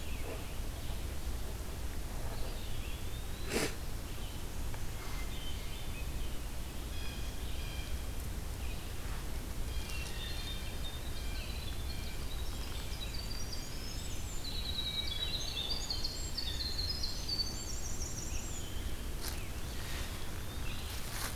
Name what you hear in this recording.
Eastern Wood-Pewee, Hermit Thrush, Blue Jay, Winter Wren